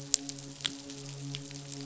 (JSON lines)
{"label": "biophony, midshipman", "recorder": "SoundTrap 500"}